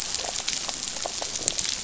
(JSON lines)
{"label": "biophony", "recorder": "SoundTrap 500"}